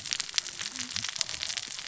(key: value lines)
label: biophony, cascading saw
recorder: SoundTrap 600 or HydroMoth